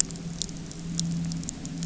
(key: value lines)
label: anthrophony, boat engine
recorder: SoundTrap 300